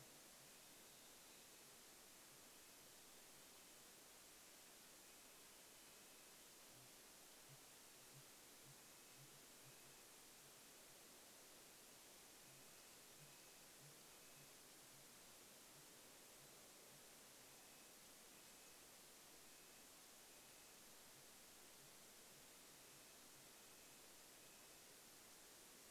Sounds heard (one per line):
Sooty Grouse song
Red-breasted Nuthatch song